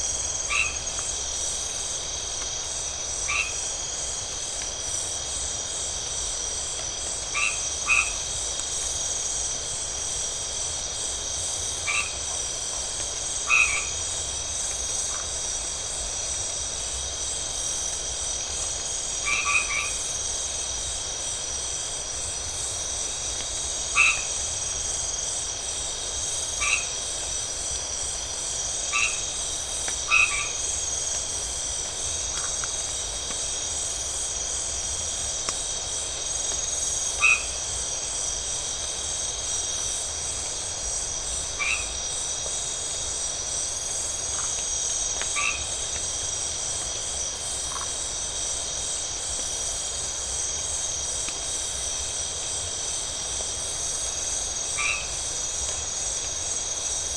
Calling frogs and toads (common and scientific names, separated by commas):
white-edged tree frog (Boana albomarginata), Phyllomedusa distincta